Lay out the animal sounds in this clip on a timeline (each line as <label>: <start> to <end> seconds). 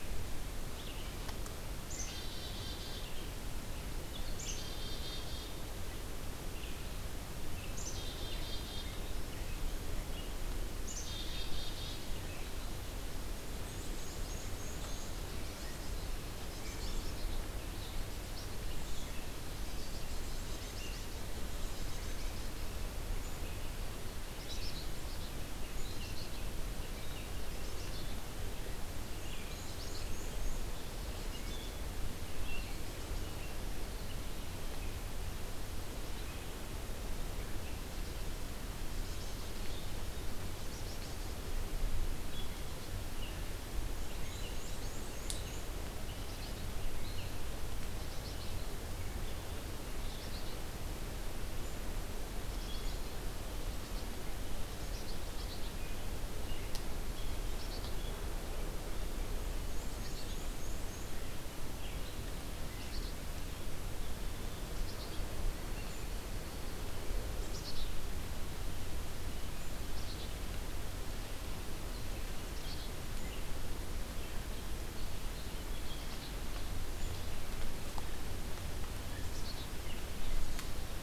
Red-eyed Vireo (Vireo olivaceus): 0.0 to 6.9 seconds
Black-capped Chickadee (Poecile atricapillus): 1.8 to 3.2 seconds
Black-capped Chickadee (Poecile atricapillus): 4.3 to 5.7 seconds
Red-eyed Vireo (Vireo olivaceus): 7.3 to 38.4 seconds
Black-capped Chickadee (Poecile atricapillus): 7.7 to 9.0 seconds
Black-capped Chickadee (Poecile atricapillus): 10.8 to 12.0 seconds
Black-and-white Warbler (Mniotilta varia): 13.4 to 15.2 seconds
Black-capped Chickadee (Poecile atricapillus): 13.4 to 14.6 seconds
Black-capped Chickadee (Poecile atricapillus): 15.1 to 16.1 seconds
Black-capped Chickadee (Poecile atricapillus): 16.3 to 17.4 seconds
Black-capped Chickadee (Poecile atricapillus): 19.5 to 22.7 seconds
Black-capped Chickadee (Poecile atricapillus): 24.3 to 25.4 seconds
Black-capped Chickadee (Poecile atricapillus): 25.7 to 26.4 seconds
Black-capped Chickadee (Poecile atricapillus): 27.5 to 28.2 seconds
Black-and-white Warbler (Mniotilta varia): 29.0 to 30.8 seconds
Black-capped Chickadee (Poecile atricapillus): 29.5 to 30.0 seconds
Black-capped Chickadee (Poecile atricapillus): 31.0 to 31.8 seconds
Black-capped Chickadee (Poecile atricapillus): 32.7 to 33.2 seconds
Black-capped Chickadee (Poecile atricapillus): 39.0 to 39.9 seconds
Black-capped Chickadee (Poecile atricapillus): 40.6 to 41.5 seconds
Red-eyed Vireo (Vireo olivaceus): 42.0 to 47.4 seconds
Black-and-white Warbler (Mniotilta varia): 44.1 to 45.8 seconds
Black-capped Chickadee (Poecile atricapillus): 44.6 to 45.0 seconds
Black-capped Chickadee (Poecile atricapillus): 46.3 to 46.9 seconds
Black-capped Chickadee (Poecile atricapillus): 48.0 to 48.7 seconds
Black-capped Chickadee (Poecile atricapillus): 50.2 to 50.6 seconds
Black-capped Chickadee (Poecile atricapillus): 52.4 to 53.1 seconds
Red-eyed Vireo (Vireo olivaceus): 52.6 to 63.9 seconds
Black-capped Chickadee (Poecile atricapillus): 54.8 to 55.8 seconds
Black-capped Chickadee (Poecile atricapillus): 57.5 to 58.0 seconds
Black-and-white Warbler (Mniotilta varia): 59.3 to 61.2 seconds
Black-capped Chickadee (Poecile atricapillus): 59.9 to 60.5 seconds
Black-capped Chickadee (Poecile atricapillus): 62.7 to 63.2 seconds
Black-capped Chickadee (Poecile atricapillus): 64.7 to 65.4 seconds
Red-eyed Vireo (Vireo olivaceus): 65.6 to 81.0 seconds
Black-capped Chickadee (Poecile atricapillus): 67.4 to 68.0 seconds
Black-capped Chickadee (Poecile atricapillus): 69.7 to 70.5 seconds
Black-capped Chickadee (Poecile atricapillus): 72.5 to 72.9 seconds
Black-capped Chickadee (Poecile atricapillus): 75.9 to 76.3 seconds
Black-capped Chickadee (Poecile atricapillus): 79.2 to 79.6 seconds